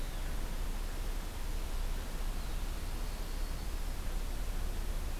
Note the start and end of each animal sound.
[2.67, 3.86] Yellow-rumped Warbler (Setophaga coronata)

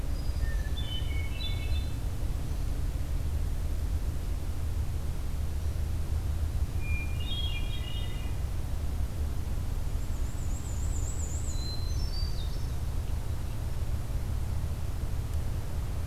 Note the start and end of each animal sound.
[0.00, 1.98] Hermit Thrush (Catharus guttatus)
[6.65, 8.44] Hermit Thrush (Catharus guttatus)
[9.83, 11.80] Black-and-white Warbler (Mniotilta varia)
[11.43, 13.00] Hermit Thrush (Catharus guttatus)

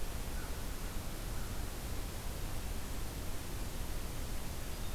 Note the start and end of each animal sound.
[0.30, 1.64] American Crow (Corvus brachyrhynchos)

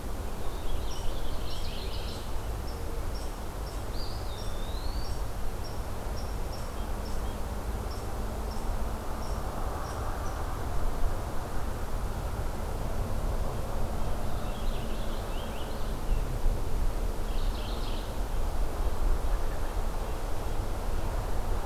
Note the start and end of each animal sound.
[0.24, 2.23] Purple Finch (Haemorhous purpureus)
[1.18, 2.41] Mourning Warbler (Geothlypis philadelphia)
[3.96, 5.24] Eastern Wood-Pewee (Contopus virens)
[13.93, 16.04] Purple Finch (Haemorhous purpureus)
[17.11, 18.26] Mourning Warbler (Geothlypis philadelphia)

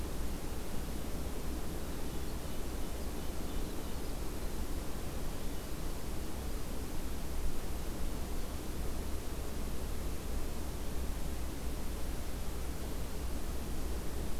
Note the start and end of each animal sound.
[1.27, 6.73] Winter Wren (Troglodytes hiemalis)
[2.24, 3.95] White-breasted Nuthatch (Sitta carolinensis)

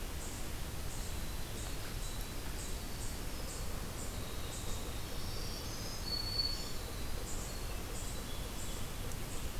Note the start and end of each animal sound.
[0.00, 9.60] Eastern Chipmunk (Tamias striatus)
[0.77, 5.11] Winter Wren (Troglodytes hiemalis)
[4.23, 9.60] Yellow-bellied Sapsucker (Sphyrapicus varius)
[4.96, 7.34] Black-throated Green Warbler (Setophaga virens)

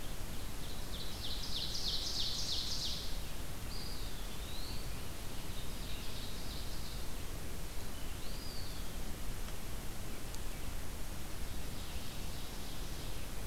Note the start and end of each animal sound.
[0.00, 3.08] Ovenbird (Seiurus aurocapilla)
[3.42, 4.98] Eastern Wood-Pewee (Contopus virens)
[5.24, 7.13] Ovenbird (Seiurus aurocapilla)
[8.01, 9.13] Eastern Wood-Pewee (Contopus virens)
[11.27, 13.35] Ovenbird (Seiurus aurocapilla)

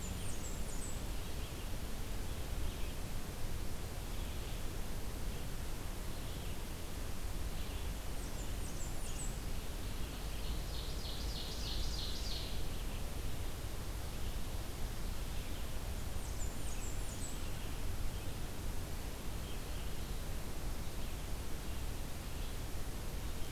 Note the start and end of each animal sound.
[0.00, 1.33] Blackburnian Warbler (Setophaga fusca)
[0.00, 9.25] Red-eyed Vireo (Vireo olivaceus)
[7.62, 9.43] Blackburnian Warbler (Setophaga fusca)
[9.80, 12.54] Ovenbird (Seiurus aurocapilla)
[15.85, 17.56] Blackburnian Warbler (Setophaga fusca)

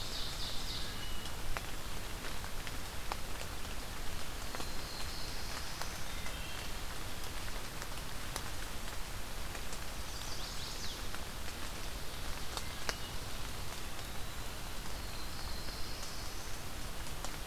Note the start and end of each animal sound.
[0.00, 0.92] Ovenbird (Seiurus aurocapilla)
[0.74, 1.29] Wood Thrush (Hylocichla mustelina)
[4.22, 6.15] Black-throated Blue Warbler (Setophaga caerulescens)
[6.08, 6.68] Wood Thrush (Hylocichla mustelina)
[9.90, 11.04] Chestnut-sided Warbler (Setophaga pensylvanica)
[12.53, 12.86] Wood Thrush (Hylocichla mustelina)
[13.79, 14.67] Eastern Wood-Pewee (Contopus virens)
[14.69, 16.49] Black-throated Blue Warbler (Setophaga caerulescens)

